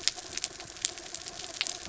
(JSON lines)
{"label": "anthrophony, mechanical", "recorder": "SoundTrap 300"}